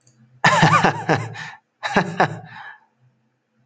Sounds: Laughter